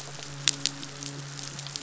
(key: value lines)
label: biophony
recorder: SoundTrap 500

label: biophony, midshipman
recorder: SoundTrap 500